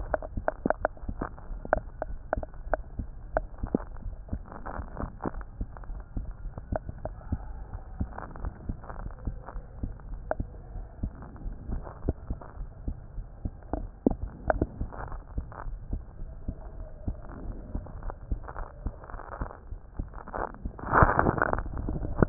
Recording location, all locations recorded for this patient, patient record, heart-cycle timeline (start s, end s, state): aortic valve (AV)
aortic valve (AV)+pulmonary valve (PV)+tricuspid valve (TV)+mitral valve (MV)
#Age: Child
#Sex: Female
#Height: 113.0 cm
#Weight: 17.8 kg
#Pregnancy status: False
#Murmur: Absent
#Murmur locations: nan
#Most audible location: nan
#Systolic murmur timing: nan
#Systolic murmur shape: nan
#Systolic murmur grading: nan
#Systolic murmur pitch: nan
#Systolic murmur quality: nan
#Diastolic murmur timing: nan
#Diastolic murmur shape: nan
#Diastolic murmur grading: nan
#Diastolic murmur pitch: nan
#Diastolic murmur quality: nan
#Outcome: Normal
#Campaign: 2015 screening campaign
0.00	5.14	unannotated
5.14	5.34	diastole
5.34	5.46	S1
5.46	5.58	systole
5.58	5.72	S2
5.72	5.90	diastole
5.90	6.02	S1
6.02	6.14	systole
6.14	6.26	S2
6.26	6.44	diastole
6.44	6.54	S1
6.54	6.70	systole
6.70	6.82	S2
6.82	7.04	diastole
7.04	7.16	S1
7.16	7.28	systole
7.28	7.40	S2
7.40	7.71	diastole
7.71	7.82	S1
7.82	7.98	systole
7.98	8.11	S2
8.11	8.42	diastole
8.42	8.54	S1
8.54	8.66	systole
8.66	8.76	S2
8.76	8.96	diastole
8.96	9.10	S1
9.10	9.24	systole
9.24	9.38	S2
9.38	9.52	diastole
9.52	9.64	S1
9.64	9.80	systole
9.80	9.92	S2
9.92	10.10	diastole
10.10	10.24	S1
10.24	10.38	systole
10.38	10.48	S2
10.48	10.72	diastole
10.72	10.86	S1
10.86	11.02	systole
11.02	11.14	S2
11.14	11.38	diastole
11.38	11.56	S1
11.56	11.70	systole
11.70	11.84	S2
11.84	12.04	diastole
12.04	12.16	S1
12.16	12.28	systole
12.28	12.38	S2
12.38	12.58	diastole
12.58	12.70	S1
12.70	12.86	systole
12.86	12.96	S2
12.96	13.14	diastole
13.14	13.26	S1
13.26	13.42	systole
13.42	13.54	S2
13.54	13.72	diastole
13.72	14.79	unannotated
14.79	14.92	S2
14.92	15.08	diastole
15.08	15.22	S1
15.22	15.34	systole
15.34	15.50	S2
15.50	15.68	diastole
15.68	15.80	S1
15.80	15.92	systole
15.92	16.04	S2
16.04	16.18	diastole
16.18	16.32	S1
16.32	16.46	systole
16.46	16.60	S2
16.60	16.76	diastole
16.76	16.88	S1
16.88	17.06	systole
17.06	17.18	S2
17.18	17.42	diastole
17.42	17.58	S1
17.58	17.74	systole
17.74	17.86	S2
17.86	18.02	diastole
18.02	18.16	S1
18.16	18.30	systole
18.30	18.41	S2
18.41	18.57	diastole
18.57	18.70	S1
18.70	18.84	systole
18.84	18.94	S2
18.94	19.12	diastole
19.12	19.20	S1
19.20	19.38	systole
19.38	19.50	S2
19.50	19.70	diastole
19.70	19.77	S1
19.77	22.29	unannotated